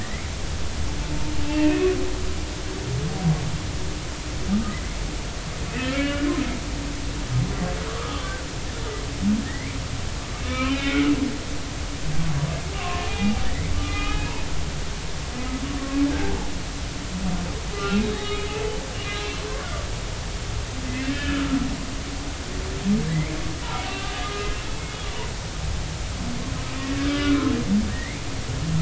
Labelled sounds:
0.0	0.3	humpback whale, 1.7 to 2.3 kHz
1.5	1.9	humpback whale, 2.4 to 2.8 kHz
5.7	6.3	humpback whale, 1.3 to 2.9 kHz
7.9	8.3	humpback whale, 1.1 to 3.5 kHz
9.5	11.1	humpback whale, 0.99 to 3.1 kHz
12.8	13.4	humpback whale, 0.80 to 2.5 kHz
13.8	14.3	humpback whale, 1.1 to 3.0 kHz
16.1	16.4	humpback whale, 1.5 to 1.7 kHz
17.8	18.5	humpback whale, 1.2 to 3.8 kHz
19.0	19.4	humpback whale, 1.6 to 4.0 kHz
21.0	21.6	humpback whale, 1.2 to 1.8 kHz
23.1	24.5	humpback whale, 0.80 to 2.3 kHz
27.0	27.4	humpback whale, 1.1 to 2.4 kHz
27.9	28.2	humpback whale, 1.8 to 2.3 kHz

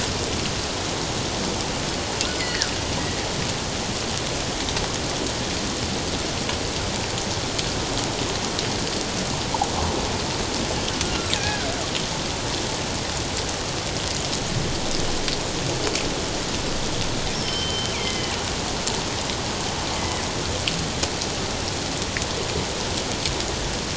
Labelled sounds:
2.4	2.7	killer whale, northern resident, G clan, 1.4 to 2.2 kHz
11.0	11.7	killer whale, northern resident, G clan, 1.3 to 2.6 kHz
17.3	18.3	killer whale, northern resident, G clan, 1.9 to 5.6 kHz
19.9	20.2	killer whale, northern resident, G clan, 1.9 to 2.1 kHz

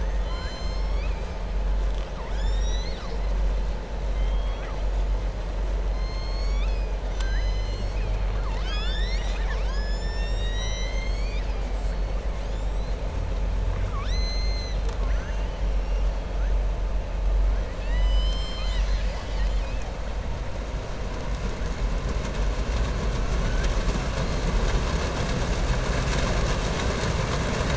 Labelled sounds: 0.0	1.2	killer whale, southern resident, 1.0 to 7.4 kHz
4.1	4.8	killer whale, southern resident, 1.1 to 3.8 kHz
5.9	8.2	killer whale, southern resident, 1.3 to 7.6 kHz
13.6	15.0	killer whale, southern resident, 1.1 to 7.9 kHz

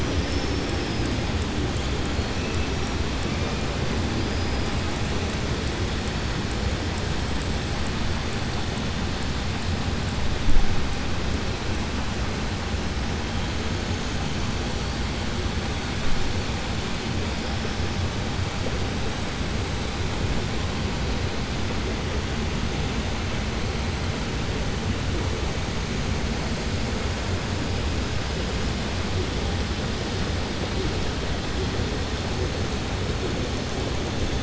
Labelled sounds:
0.0	1.0	killer whale, southern resident, 4.7 to 6.3 kHz

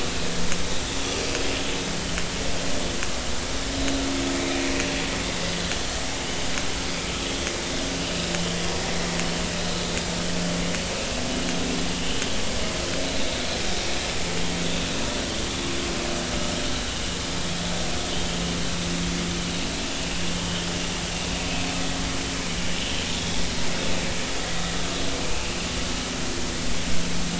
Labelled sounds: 20.4	20.7	vessel noise, 2.9 to 3.3 kHz
23.1	23.4	vessel noise, 3.3 to 3.5 kHz

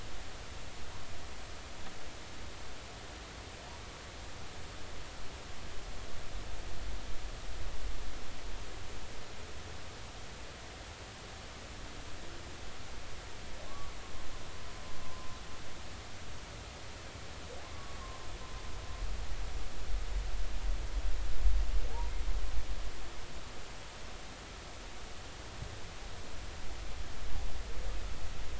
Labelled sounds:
13.7	13.9	humpback whale, 1.0 to 1.2 kHz
15.0	15.3	humpback whale, 0.96 to 1.1 kHz

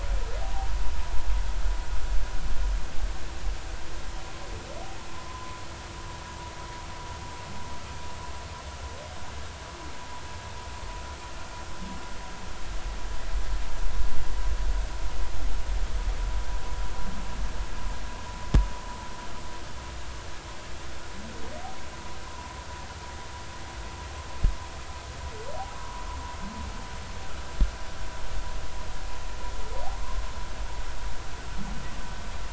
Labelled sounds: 0.4	0.7	humpback whale, 0.80 to 0.93 kHz
5.3	5.6	humpback whale, 0.96 to 1.1 kHz
25.7	26.0	humpback whale, 1.0 to 1.1 kHz
30.0	30.2	humpback whale, 0.99 to 1.2 kHz

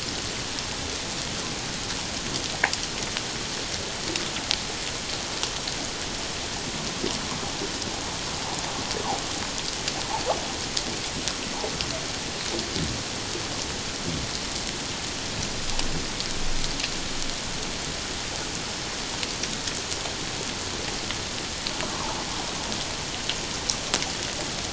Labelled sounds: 21.8	22.2	water noise, 0.81 to 1.2 kHz

